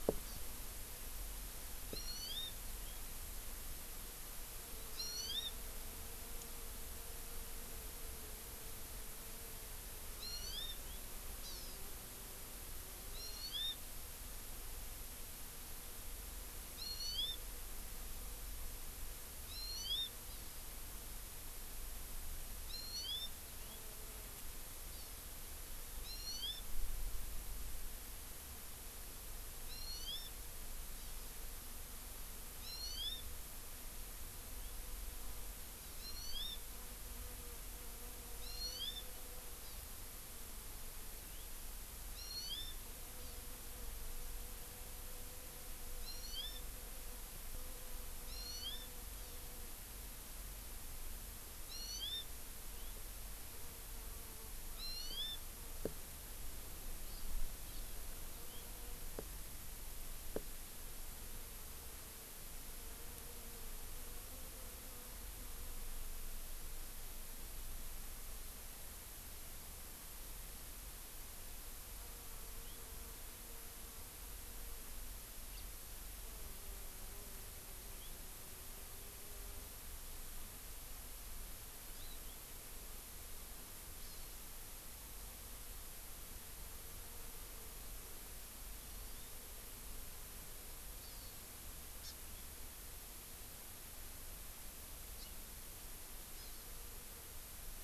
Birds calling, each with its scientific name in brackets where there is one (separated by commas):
Hawaii Amakihi (Chlorodrepanis virens), House Finch (Haemorhous mexicanus)